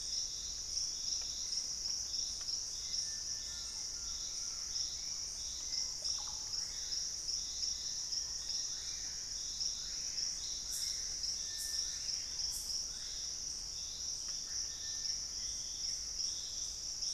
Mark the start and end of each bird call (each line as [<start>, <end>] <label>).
[0.00, 7.70] Hauxwell's Thrush (Turdus hauxwelli)
[3.40, 5.00] Collared Trogon (Trogon collaris)
[5.90, 6.70] Russet-backed Oropendola (Psarocolius angustifrons)
[6.30, 13.40] Screaming Piha (Lipaugus vociferans)
[7.30, 9.30] Buff-throated Woodcreeper (Xiphorhynchus guttatus)
[14.30, 16.20] Buff-throated Woodcreeper (Xiphorhynchus guttatus)